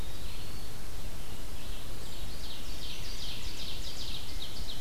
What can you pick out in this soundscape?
Eastern Wood-Pewee, Red-eyed Vireo, Ovenbird